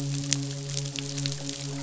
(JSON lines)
{"label": "biophony, midshipman", "recorder": "SoundTrap 500"}